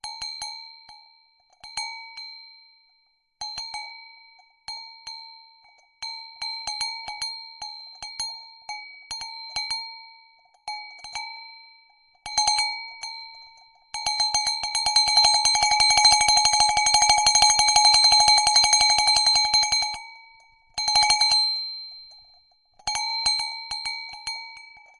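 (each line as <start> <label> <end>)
0.0 A small bell rings with a high-pitched, changing frequency and loudness. 25.0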